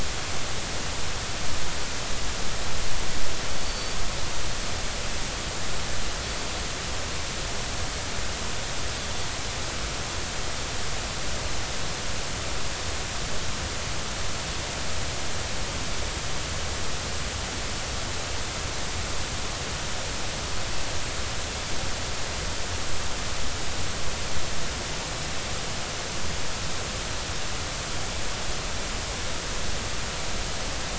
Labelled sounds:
3.6	4.0	Pacific white-sided dolphin, 4.5 to 4.6 kHz

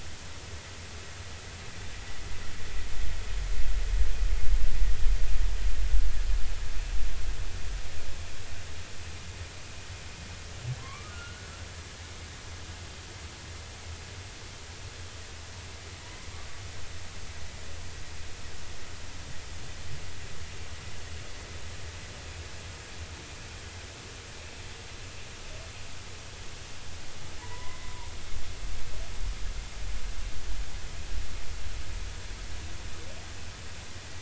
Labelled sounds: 10.8	11.5	humpback whale, 0.96 to 2.4 kHz
27.4	28.1	humpback whale, 0.83 to 2.1 kHz

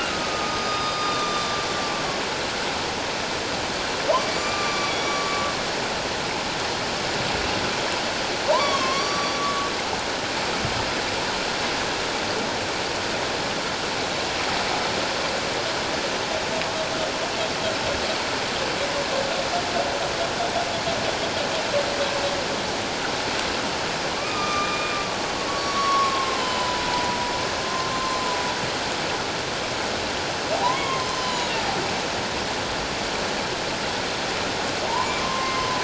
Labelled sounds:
0.1	1.7	humpback whale, 1.1 to 6.1 kHz
4.3	5.5	humpback whale, 1.1 to 7.2 kHz
8.5	9.7	humpback whale, 0.84 to 5.8 kHz
24.1	25.0	humpback whale, 0.94 to 6.1 kHz
25.5	27.2	humpback whale, 0.88 to 5.7 kHz
27.6	28.4	humpback whale, 1.0 to 7.2 kHz
30.6	31.5	humpback whale, 0.91 to 7.1 kHz
34.8	35.8	humpback whale, 0.88 to 2.2 kHz

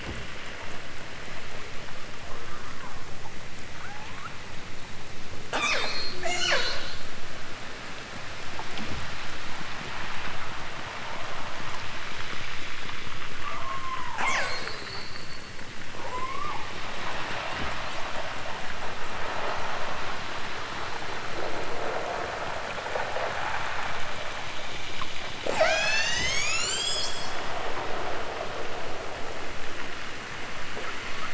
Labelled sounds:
2.2	3.1	killer whale, southern Alaska resident, 0.51 to 2.7 kHz
3.8	4.4	killer whale, southern Alaska resident, 0.55 to 2.7 kHz
5.4	7.1	killer whale, southern Alaska resident, 0.23 to 8.0 kHz
13.2	15.6	killer whale, southern Alaska resident, 0.23 to 8.0 kHz
16.0	16.7	killer whale, southern Alaska resident, 0.32 to 8.0 kHz
17.0	18.1	killer whale, southern Alaska resident, 1.3 to 6.9 kHz
25.4	27.3	killer whale, southern Alaska resident, 0.23 to 8.0 kHz

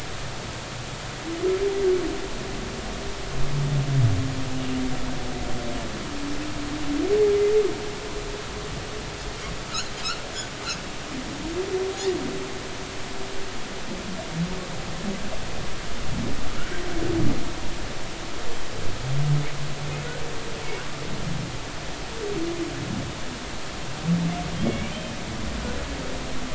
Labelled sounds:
10.0	10.2	humpback whale, 4.9 to 5.7 kHz
24.6	25.0	humpback whale, 2.2 to 2.5 kHz

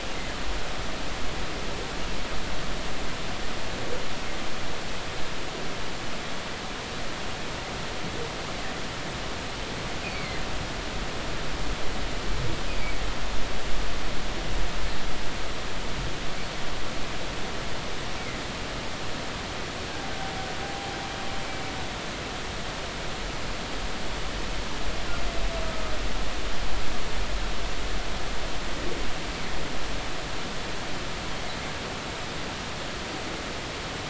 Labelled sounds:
10.0	10.4	humpback whale, 1.8 to 4.6 kHz
20.6	20.9	humpback whale, 0.80 to 0.86 kHz

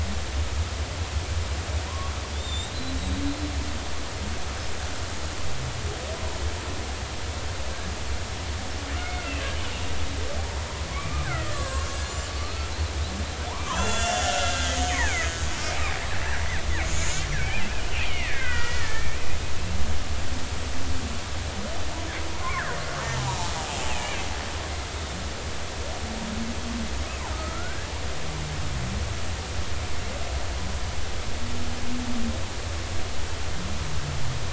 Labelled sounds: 1.9	3.2	killer whale, Bigg's (transient), 0.93 to 7.6 kHz
9.0	9.3	killer whale, Bigg's (transient), 2.1 to 2.2 kHz
10.9	12.7	killer whale, Bigg's (transient), 0.99 to 7.8 kHz
13.7	15.3	killer whale, Bigg's (transient), 1.3 to 7.7 kHz
17.4	19.2	killer whale, Bigg's (transient), 1.3 to 3.3 kHz
22.4	22.6	killer whale, Bigg's (transient), 0.99 to 1.2 kHz
23.9	24.3	killer whale, Bigg's (transient), 2.0 to 2.8 kHz
27.3	27.9	killer whale, Bigg's (transient), 1.2 to 1.7 kHz

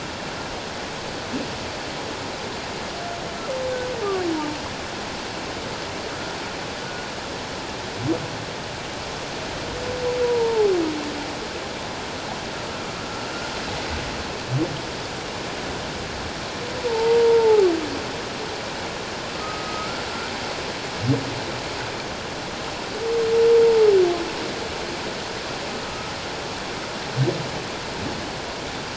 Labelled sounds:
10.2	10.7	humpback whale, 0.78 to 1.0 kHz
16.9	17.6	humpback whale, 0.78 to 0.97 kHz
19.3	20.0	humpback whale, 1.2 to 1.4 kHz
25.9	26.1	humpback whale, 1.2 to 1.4 kHz

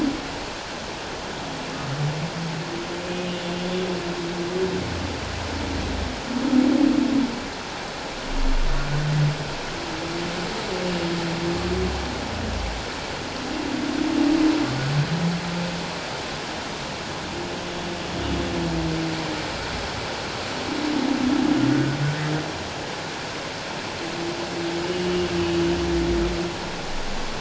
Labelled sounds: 3.0	3.3	humpback whale, 2.4 to 2.6 kHz
21.7	22.0	humpback whale, 1.4 to 1.6 kHz

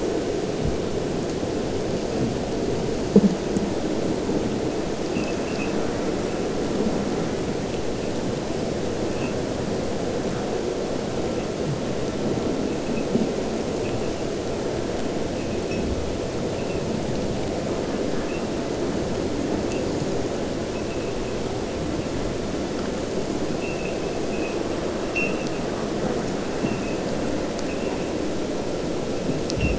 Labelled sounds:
5.0	6.0	abiotic sound, 1.2 to 3.0 kHz

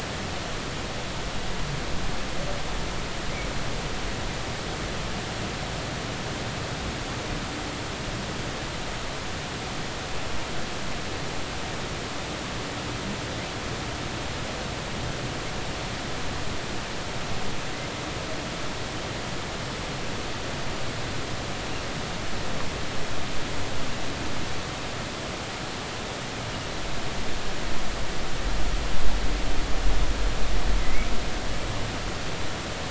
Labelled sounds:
30.8	31.1	humpback whale, 1.9 to 2.3 kHz

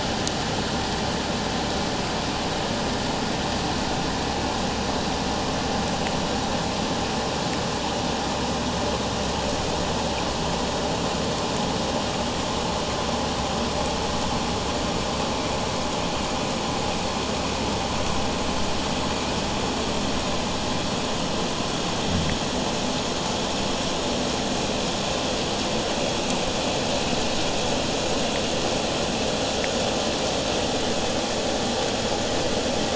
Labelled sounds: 21.7	22.6	fish, 0 to 0.52 kHz

